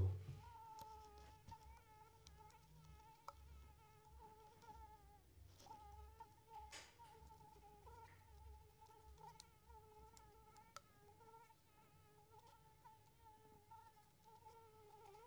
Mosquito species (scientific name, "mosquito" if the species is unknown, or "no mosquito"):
Anopheles coustani